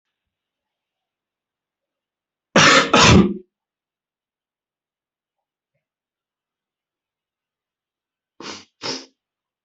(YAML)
expert_labels:
- quality: ok
  cough_type: unknown
  dyspnea: false
  wheezing: false
  stridor: false
  choking: false
  congestion: true
  nothing: false
  diagnosis: upper respiratory tract infection
  severity: mild
age: 40
gender: male
respiratory_condition: false
fever_muscle_pain: false
status: healthy